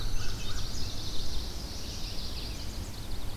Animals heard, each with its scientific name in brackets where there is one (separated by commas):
Indigo Bunting (Passerina cyanea), American Crow (Corvus brachyrhynchos), Chestnut-sided Warbler (Setophaga pensylvanica), Red-eyed Vireo (Vireo olivaceus)